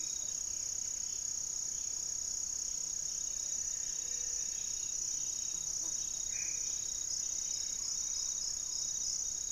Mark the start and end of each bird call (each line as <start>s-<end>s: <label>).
0.0s-1.0s: Buff-breasted Wren (Cantorchilus leucotis)
0.0s-9.5s: Amazonian Trogon (Trogon ramonianus)
2.7s-5.0s: unidentified bird
3.7s-4.6s: Gray-fronted Dove (Leptotila rufaxilla)
6.2s-6.9s: Black-faced Antthrush (Formicarius analis)
6.7s-8.4s: Plumbeous Antbird (Myrmelastes hyperythrus)
7.0s-8.7s: unidentified bird